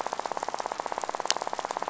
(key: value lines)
label: biophony, rattle
recorder: SoundTrap 500